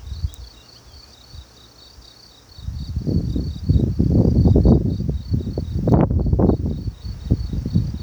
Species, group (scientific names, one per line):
Gryllus campestris
Orthoptera